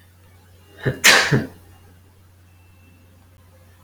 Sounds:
Sneeze